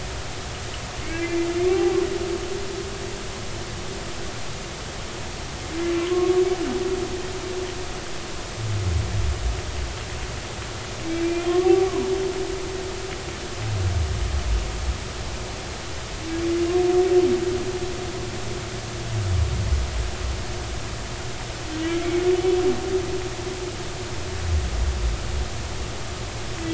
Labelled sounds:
1.0	1.5	humpback whale, 2.0 to 2.4 kHz
6.0	6.4	humpback whale, 0.99 to 1.2 kHz
11.2	12.1	humpback whale, 0.90 to 2.5 kHz
21.9	22.2	humpback whale, 2.0 to 2.4 kHz

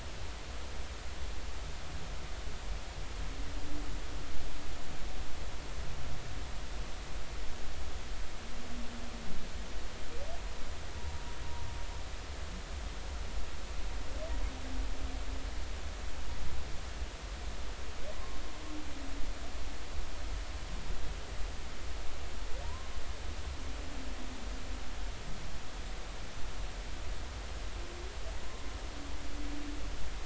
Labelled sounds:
22.6	22.9	humpback whale, 0.86 to 1.1 kHz

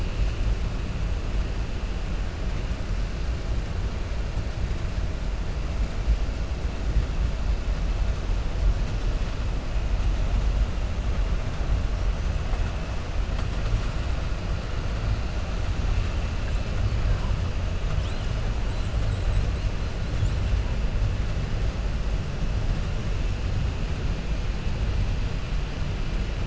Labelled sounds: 18.7	19.5	killer whale, 6.7 to 8.0 kHz

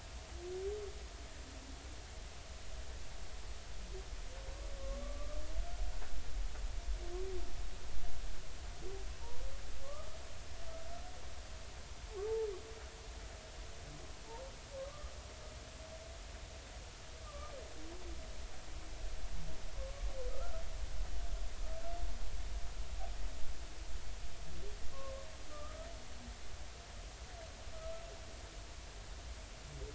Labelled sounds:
4.8	5.4	humpback whale, 1.0 to 1.2 kHz
9.8	10.1	humpback whale, 1.0 to 1.3 kHz
14.8	15.1	humpback whale, 1.0 to 1.3 kHz
17.2	17.5	humpback whale, 1.1 to 1.3 kHz
20.3	20.6	humpback whale, 1.2 to 1.5 kHz
24.9	25.9	humpback whale, 1.0 to 1.4 kHz

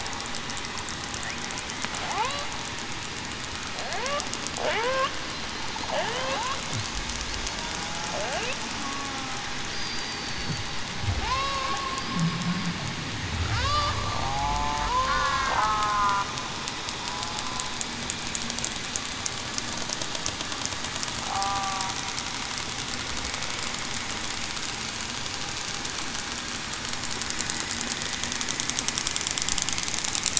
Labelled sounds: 2.1	2.4	killer whale, southern resident, 0.66 to 1.2 kHz
4.7	5.1	killer whale, southern resident, 0.38 to 0.56 kHz
6.0	6.4	killer whale, southern resident, 0.38 to 0.56 kHz
8.8	9.1	killer whale, southern resident, 1.08 to 1.15 kHz
9.7	10.8	killer whale, southern resident, 4.4 to 4.9 kHz
11.2	11.7	killer whale, southern resident, 0.42 to 2.8 kHz
14.2	16.2	killer whale, southern resident, 0.47 to 1.5 kHz
21.3	21.9	killer whale, southern resident, 0.70 to 1.2 kHz

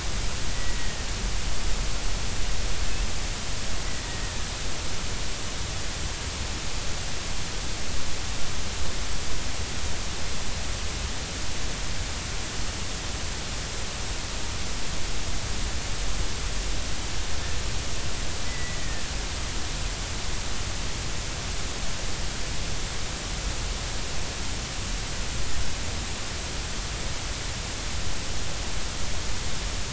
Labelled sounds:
0.5	1.0	killer whale, Bigg's (transient), 1.8 to 2.0 kHz
18.5	19.0	killer whale, Bigg's (transient), 1.7 to 2.0 kHz

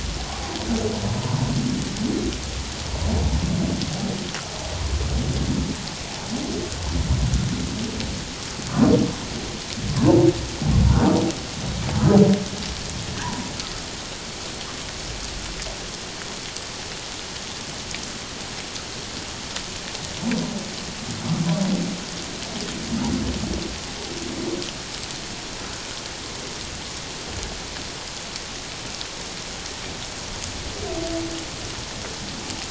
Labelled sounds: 0.3	0.5	humpback whale, 0.78 to 0.84 kHz

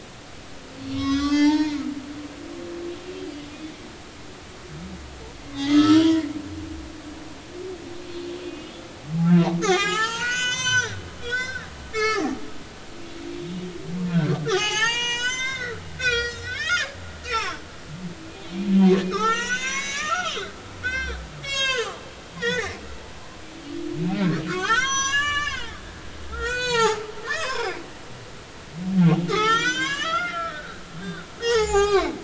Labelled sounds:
0.8	1.8	humpback whale, 0.83 to 6.5 kHz
5.5	6.2	humpback whale, 0.90 to 6.6 kHz
8.4	8.7	humpback whale, 2.4 to 3.0 kHz
9.6	11.7	humpback whale, 0.80 to 7.7 kHz
11.9	12.2	humpback whale, 1.1 to 5.8 kHz
12.9	16.9	humpback whale, 0.80 to 8.0 kHz
17.3	17.6	humpback whale, 0.99 to 5.9 kHz
19.0	20.5	humpback whale, 0.80 to 7.8 kHz
20.8	22.0	humpback whale, 0.96 to 8.0 kHz
22.4	22.8	humpback whale, 0.80 to 6.6 kHz
24.5	25.8	humpback whale, 0.80 to 8.0 kHz
26.3	27.8	humpback whale, 0.80 to 8.0 kHz
29.3	32.2	humpback whale, 0.80 to 7.5 kHz

